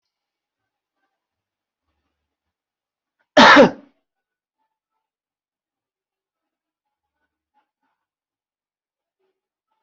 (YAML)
expert_labels:
- quality: good
  cough_type: dry
  dyspnea: false
  wheezing: false
  stridor: false
  choking: false
  congestion: false
  nothing: true
  diagnosis: upper respiratory tract infection
  severity: unknown
gender: female
respiratory_condition: true
fever_muscle_pain: true
status: COVID-19